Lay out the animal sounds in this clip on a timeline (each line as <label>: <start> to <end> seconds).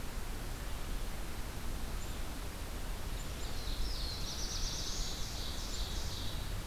Black-throated Blue Warbler (Setophaga caerulescens): 3.3 to 5.1 seconds
Ovenbird (Seiurus aurocapilla): 3.3 to 6.6 seconds